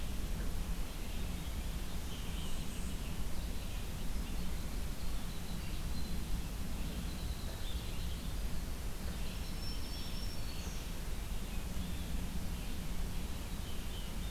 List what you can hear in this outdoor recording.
Red-eyed Vireo, Winter Wren, Black-throated Green Warbler, Blue Jay